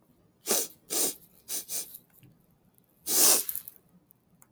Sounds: Sniff